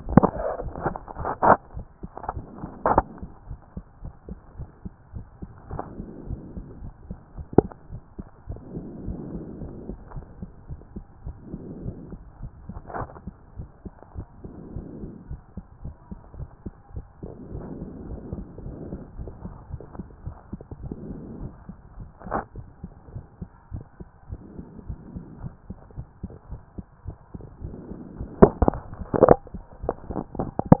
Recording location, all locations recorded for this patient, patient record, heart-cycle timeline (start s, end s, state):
tricuspid valve (TV)
pulmonary valve (PV)+tricuspid valve (TV)+mitral valve (MV)
#Age: Child
#Sex: Male
#Height: 151.0 cm
#Weight: 44.0 kg
#Pregnancy status: False
#Murmur: Absent
#Murmur locations: nan
#Most audible location: nan
#Systolic murmur timing: nan
#Systolic murmur shape: nan
#Systolic murmur grading: nan
#Systolic murmur pitch: nan
#Systolic murmur quality: nan
#Diastolic murmur timing: nan
#Diastolic murmur shape: nan
#Diastolic murmur grading: nan
#Diastolic murmur pitch: nan
#Diastolic murmur quality: nan
#Outcome: Normal
#Campaign: 2014 screening campaign
0.00	3.25	unannotated
3.25	3.30	S2
3.30	3.48	diastole
3.48	3.58	S1
3.58	3.76	systole
3.76	3.84	S2
3.84	4.02	diastole
4.02	4.14	S1
4.14	4.28	systole
4.28	4.38	S2
4.38	4.58	diastole
4.58	4.68	S1
4.68	4.84	systole
4.84	4.92	S2
4.92	5.14	diastole
5.14	5.26	S1
5.26	5.42	systole
5.42	5.50	S2
5.50	5.70	diastole
5.70	5.82	S1
5.82	5.98	systole
5.98	6.06	S2
6.06	6.28	diastole
6.28	6.40	S1
6.40	6.56	systole
6.56	6.66	S2
6.66	6.82	diastole
6.82	6.94	S1
6.94	7.08	systole
7.08	7.18	S2
7.18	7.36	diastole
7.36	7.46	S1
7.46	7.60	systole
7.60	7.70	S2
7.70	7.90	diastole
7.90	8.02	S1
8.02	8.18	systole
8.18	8.26	S2
8.26	8.48	diastole
8.48	8.60	S1
8.60	8.74	systole
8.74	8.84	S2
8.84	9.04	diastole
9.04	9.18	S1
9.18	9.32	systole
9.32	9.42	S2
9.42	9.60	diastole
9.60	9.72	S1
9.72	9.88	systole
9.88	9.96	S2
9.96	10.14	diastole
10.14	10.24	S1
10.24	10.40	systole
10.40	10.50	S2
10.50	10.68	diastole
10.68	10.80	S1
10.80	10.94	systole
10.94	11.04	S2
11.04	11.24	diastole
11.24	11.36	S1
11.36	11.50	systole
11.50	11.60	S2
11.60	11.82	diastole
11.82	11.96	S1
11.96	12.10	systole
12.10	12.20	S2
12.20	12.40	diastole
12.40	12.52	S1
12.52	12.68	systole
12.68	12.78	S2
12.78	12.98	diastole
12.98	13.08	S1
13.08	13.26	systole
13.26	13.34	S2
13.34	13.56	diastole
13.56	13.68	S1
13.68	13.84	systole
13.84	13.94	S2
13.94	14.16	diastole
14.16	14.26	S1
14.26	14.42	systole
14.42	14.52	S2
14.52	14.74	diastole
14.74	14.86	S1
14.86	15.02	systole
15.02	15.10	S2
15.10	15.28	diastole
15.28	15.40	S1
15.40	15.56	systole
15.56	15.64	S2
15.64	15.84	diastole
15.84	15.94	S1
15.94	16.10	systole
16.10	16.18	S2
16.18	16.36	diastole
16.36	16.48	S1
16.48	16.64	systole
16.64	16.74	S2
16.74	16.94	diastole
16.94	17.06	S1
17.06	17.22	systole
17.22	17.32	S2
17.32	17.52	diastole
17.52	17.66	S1
17.66	17.78	systole
17.78	17.90	S2
17.90	18.10	diastole
18.10	18.20	S1
18.20	18.34	systole
18.34	18.46	S2
18.46	18.64	diastole
18.64	18.76	S1
18.76	18.88	systole
18.88	18.98	S2
18.98	19.18	diastole
19.18	19.30	S1
19.30	19.44	systole
19.44	19.54	S2
19.54	19.70	diastole
19.70	19.82	S1
19.82	19.98	systole
19.98	20.06	S2
20.06	20.24	diastole
20.24	20.36	S1
20.36	20.52	systole
20.52	20.60	S2
20.60	20.82	diastole
20.82	20.94	S1
20.94	21.06	systole
21.06	21.18	S2
21.18	21.40	diastole
21.40	21.52	S1
21.52	21.68	systole
21.68	21.76	S2
21.76	21.98	diastole
21.98	22.08	S1
22.08	22.30	systole
22.30	22.42	S2
22.42	22.56	diastole
22.56	22.66	S1
22.66	22.82	systole
22.82	22.90	S2
22.90	23.14	diastole
23.14	23.24	S1
23.24	23.40	systole
23.40	23.48	S2
23.48	23.72	diastole
23.72	23.84	S1
23.84	24.00	systole
24.00	24.08	S2
24.08	24.30	diastole
24.30	24.40	S1
24.40	24.56	systole
24.56	24.66	S2
24.66	24.88	diastole
24.88	24.98	S1
24.98	25.14	systole
25.14	25.24	S2
25.24	25.42	diastole
25.42	25.52	S1
25.52	25.68	systole
25.68	25.78	S2
25.78	25.96	diastole
25.96	26.06	S1
26.06	26.22	systole
26.22	26.32	S2
26.32	26.50	diastole
26.50	26.60	S1
26.60	26.76	systole
26.76	26.86	S2
26.86	27.06	diastole
27.06	27.16	S1
27.16	27.22	systole
27.22	30.80	unannotated